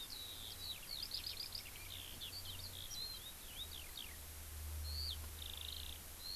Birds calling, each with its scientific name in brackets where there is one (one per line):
Warbling White-eye (Zosterops japonicus)
Eurasian Skylark (Alauda arvensis)